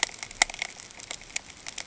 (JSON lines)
{"label": "ambient", "recorder": "HydroMoth"}